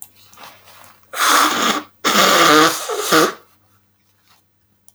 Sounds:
Sniff